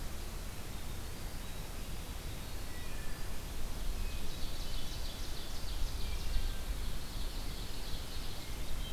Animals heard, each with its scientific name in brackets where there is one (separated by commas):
Hermit Thrush (Catharus guttatus), Wood Thrush (Hylocichla mustelina), Ovenbird (Seiurus aurocapilla), Winter Wren (Troglodytes hiemalis)